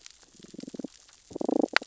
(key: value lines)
label: biophony, damselfish
recorder: SoundTrap 600 or HydroMoth